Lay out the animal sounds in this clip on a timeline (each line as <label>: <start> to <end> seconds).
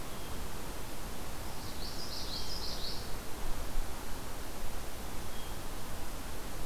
Hermit Thrush (Catharus guttatus): 0.0 to 6.7 seconds
Common Yellowthroat (Geothlypis trichas): 1.5 to 3.1 seconds